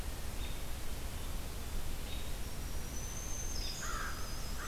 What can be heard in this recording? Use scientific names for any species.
Turdus migratorius, Setophaga virens, Corvus brachyrhynchos, unidentified call